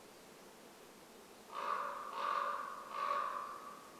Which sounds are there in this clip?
Common Raven call